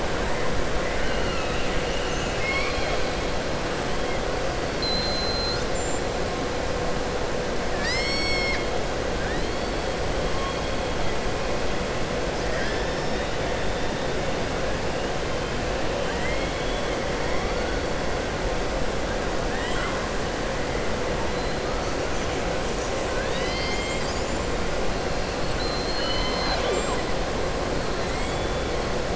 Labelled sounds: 4.7	5.7	killer whale, southern resident, 3.6 to 5.6 kHz
16.0	17.0	killer whale, southern resident, 0.98 to 8.0 kHz
25.5	27.0	killer whale, southern resident, 0.47 to 5.2 kHz
28.1	28.6	killer whale, southern resident, 1.4 to 4.0 kHz

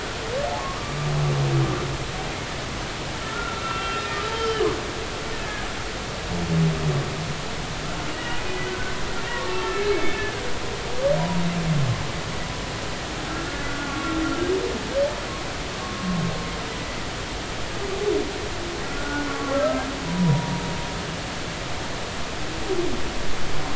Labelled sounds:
3.2	4.7	humpback whale, 1.3 to 3.2 kHz
5.4	5.7	humpback whale, 1.6 to 1.8 kHz
8.1	9.0	humpback whale, 1.4 to 2.5 kHz
9.2	10.4	humpback whale, 0.86 to 2.7 kHz
11.2	11.4	humpback whale, 0.93 to 1.0 kHz
13.7	14.2	humpback whale, 1.0 to 1.5 kHz
18.8	20.6	humpback whale, 0.90 to 1.7 kHz

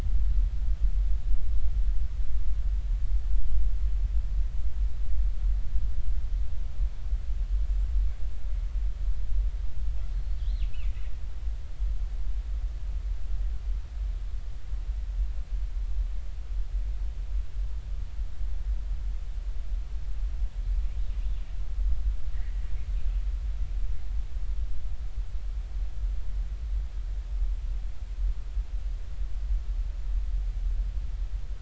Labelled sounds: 10.6	11.0	killer whale, northern resident, 2.2 to 3.1 kHz
22.3	22.6	killer whale, northern resident, 1.8 to 2.3 kHz

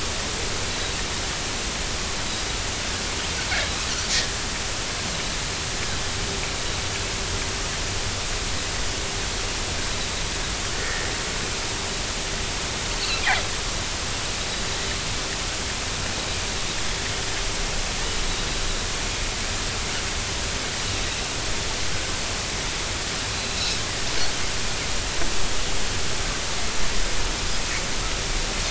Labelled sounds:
10.7	11.0	Pacific white-sided dolphin, 1.7 to 1.9 kHz
23.3	23.6	Pacific white-sided dolphin, 4.0 to 4.1 kHz

